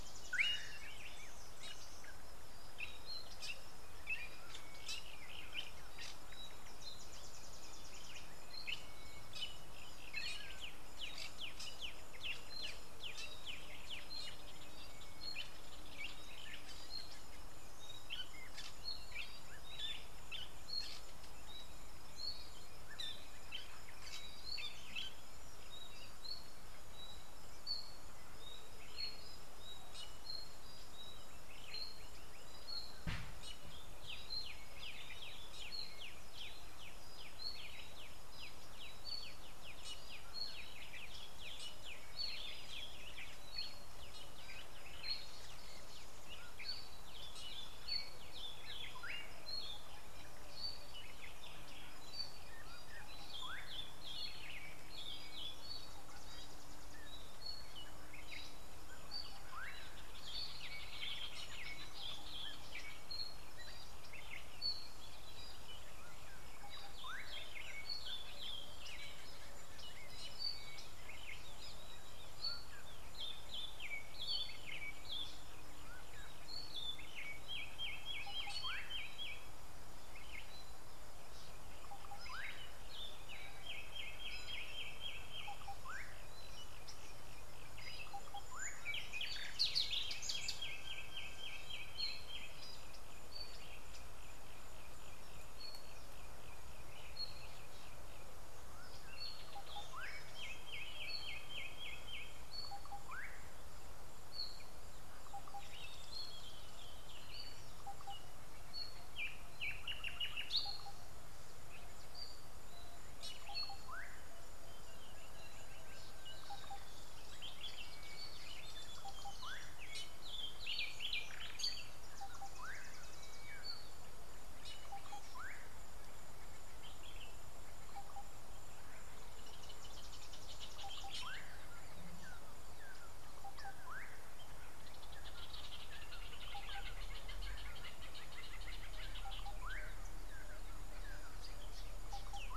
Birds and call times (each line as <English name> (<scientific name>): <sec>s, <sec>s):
Fork-tailed Drongo (Dicrurus adsimilis): 5.0s
Black-backed Puffback (Dryoscopus cubla): 12.3s
Slate-colored Boubou (Laniarius funebris): 82.4s, 88.3s, 116.6s, 125.5s, 139.7s
Spectacled Weaver (Ploceus ocularis): 119.0s
Northern Brownbul (Phyllastrephus strepitans): 130.3s, 137.6s